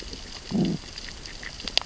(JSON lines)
{"label": "biophony, growl", "recorder": "SoundTrap 600 or HydroMoth"}